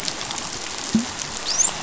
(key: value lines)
label: biophony, dolphin
recorder: SoundTrap 500